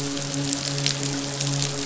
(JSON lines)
{"label": "biophony, midshipman", "recorder": "SoundTrap 500"}